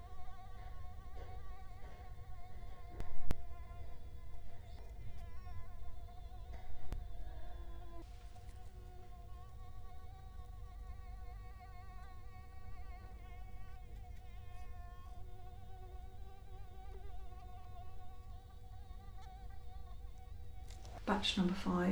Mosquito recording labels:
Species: Culex quinquefasciatus; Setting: cup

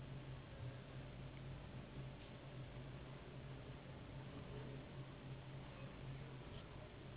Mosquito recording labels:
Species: Anopheles gambiae s.s.; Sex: female; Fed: unfed; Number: one; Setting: insect culture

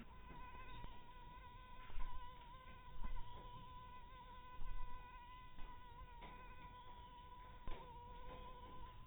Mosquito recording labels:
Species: mosquito; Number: one; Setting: cup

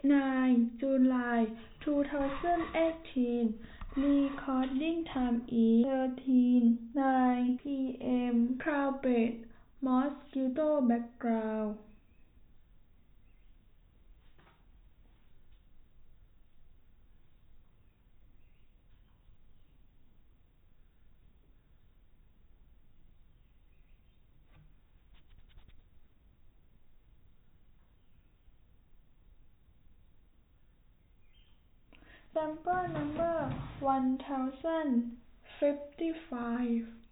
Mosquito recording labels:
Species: no mosquito; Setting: cup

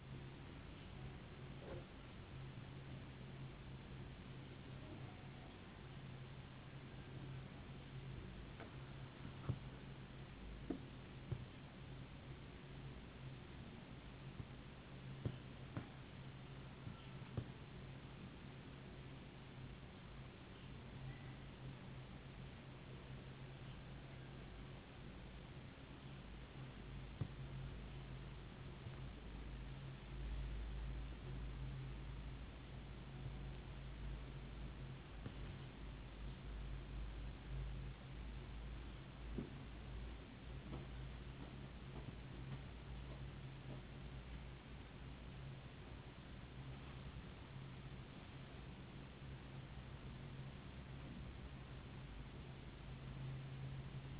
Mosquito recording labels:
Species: no mosquito; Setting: insect culture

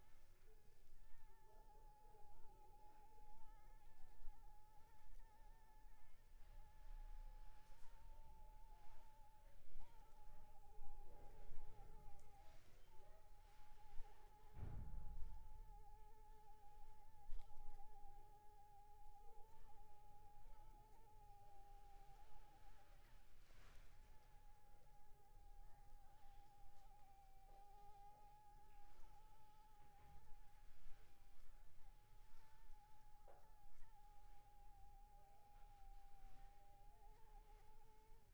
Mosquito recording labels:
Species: Anopheles arabiensis; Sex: female; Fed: unfed; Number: one; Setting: cup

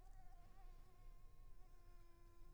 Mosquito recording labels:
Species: Anopheles arabiensis; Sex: female; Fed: unfed; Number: one; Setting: cup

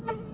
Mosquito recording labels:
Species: Aedes albopictus; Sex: female; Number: one; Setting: insect culture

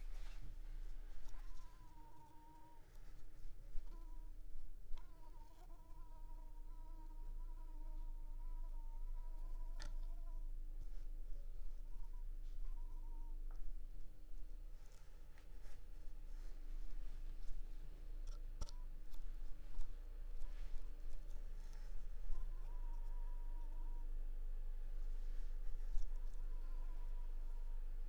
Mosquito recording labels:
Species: Anopheles coustani; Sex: female; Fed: unfed; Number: one; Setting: cup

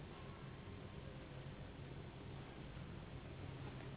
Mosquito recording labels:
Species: Anopheles gambiae s.s.; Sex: female; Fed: unfed; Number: one; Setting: insect culture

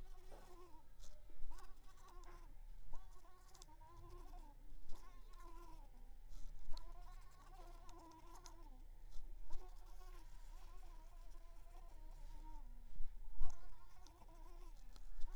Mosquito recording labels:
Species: Mansonia uniformis; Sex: female; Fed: unfed; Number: one; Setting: cup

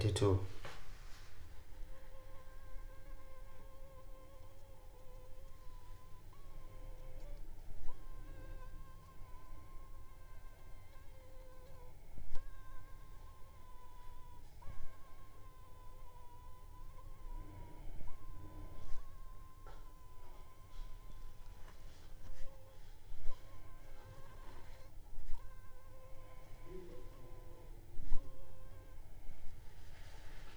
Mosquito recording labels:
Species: Anopheles funestus s.l.; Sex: female; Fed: unfed; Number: one; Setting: cup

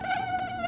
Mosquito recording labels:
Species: Aedes aegypti; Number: one; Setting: insect culture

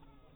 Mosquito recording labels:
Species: mosquito; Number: one; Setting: cup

